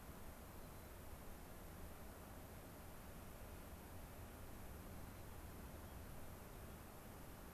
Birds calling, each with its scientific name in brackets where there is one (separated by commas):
White-crowned Sparrow (Zonotrichia leucophrys)